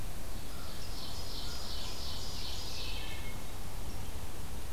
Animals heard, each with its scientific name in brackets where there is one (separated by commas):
Wood Thrush (Hylocichla mustelina), Ovenbird (Seiurus aurocapilla)